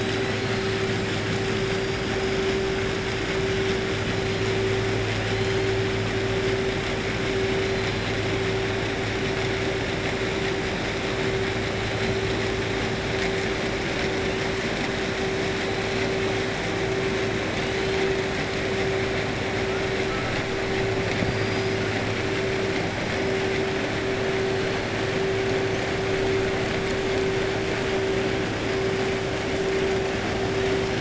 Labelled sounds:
21.2	21.8	killer whale, 4.7 to 5.9 kHz

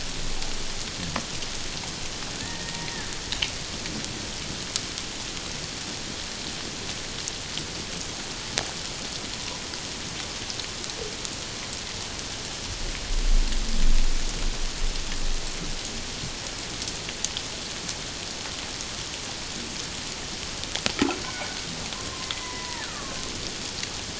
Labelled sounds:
2.4	2.8	killer whale, Bigg's (transient), 1.7 to 1.9 kHz
21.2	23.2	killer whale, Bigg's (transient), 0.84 to 2.1 kHz

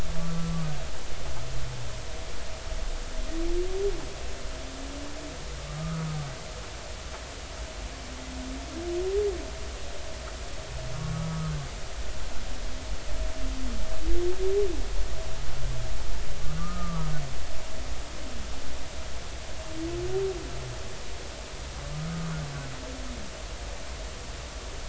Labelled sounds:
5.8	6.0	humpback whale, 1.2 to 1.3 kHz
16.6	17.1	humpback whale, 1.1 to 1.3 kHz
21.8	22.4	humpback whale, 1.1 to 1.3 kHz

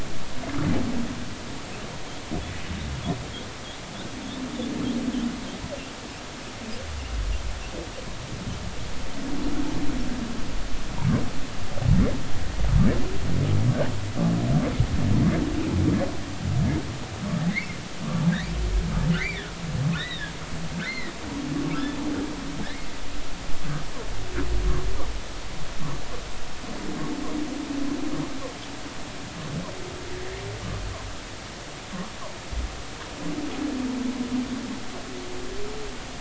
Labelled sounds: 17.5	18.3	humpback whale, 1.1 to 2.3 kHz
19.1	19.4	humpback whale, 1.7 to 2.4 kHz
20.0	20.3	humpback whale, 1.6 to 4.0 kHz
20.8	21.1	humpback whale, 1.4 to 4.3 kHz
22.6	22.9	humpback whale, 1.5 to 2.2 kHz

